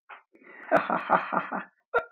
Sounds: Laughter